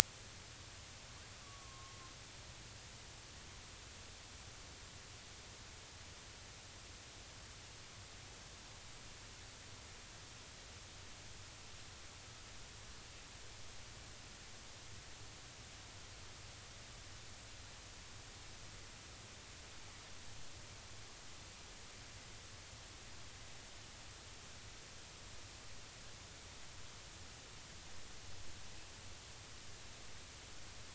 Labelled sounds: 1.4	2.0	killer whale, northern resident, A clan, AA subclan, 0.96 to 1.2 kHz

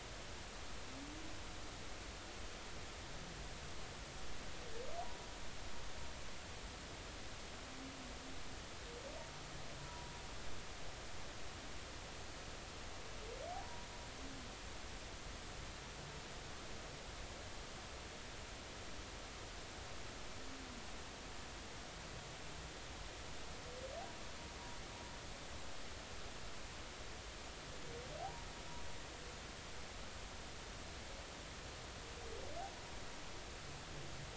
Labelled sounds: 9.8	10.1	humpback whale, 0.93 to 1.0 kHz
13.6	13.9	humpback whale, 0.90 to 1.0 kHz
28.2	28.5	humpback whale, 0.80 to 0.99 kHz

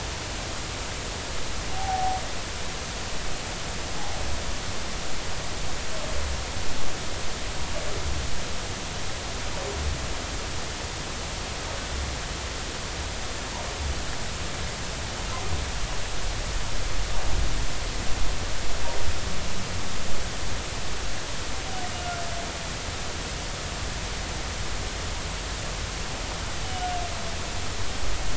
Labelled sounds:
1.7	2.2	humpback whale, 0.80 to 0.90 kHz

